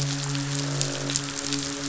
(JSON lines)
{"label": "biophony, midshipman", "recorder": "SoundTrap 500"}
{"label": "biophony, croak", "recorder": "SoundTrap 500"}